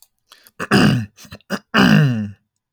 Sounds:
Throat clearing